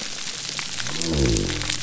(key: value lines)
label: biophony
recorder: SoundTrap 300